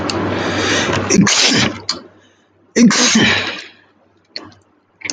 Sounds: Sneeze